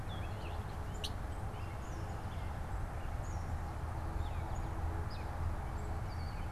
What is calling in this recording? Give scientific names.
Dumetella carolinensis, Quiscalus quiscula, Agelaius phoeniceus